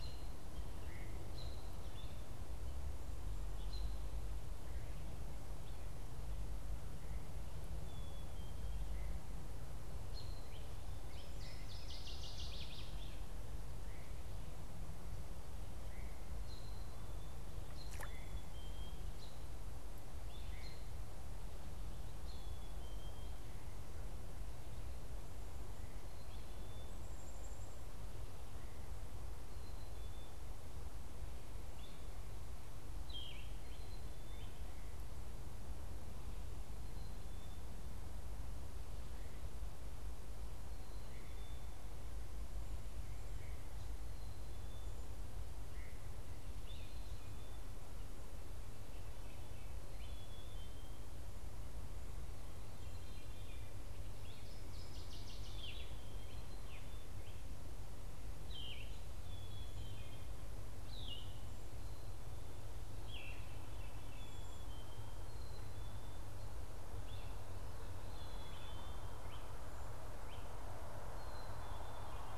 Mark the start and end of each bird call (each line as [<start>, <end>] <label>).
[0.00, 1.14] Veery (Catharus fuscescens)
[0.00, 4.04] American Robin (Turdus migratorius)
[0.00, 8.84] Black-capped Chickadee (Poecile atricapillus)
[9.94, 10.44] American Robin (Turdus migratorius)
[11.04, 13.34] Northern Waterthrush (Parkesia noveboracensis)
[17.84, 23.54] Black-capped Chickadee (Poecile atricapillus)
[26.14, 28.14] Black-capped Chickadee (Poecile atricapillus)
[29.44, 72.14] Black-capped Chickadee (Poecile atricapillus)
[32.94, 33.54] Yellow-throated Vireo (Vireo flavifrons)
[46.54, 46.94] Great Crested Flycatcher (Myiarchus crinitus)
[54.14, 55.94] Northern Waterthrush (Parkesia noveboracensis)
[55.44, 63.54] Yellow-throated Vireo (Vireo flavifrons)
[66.84, 70.54] Great Crested Flycatcher (Myiarchus crinitus)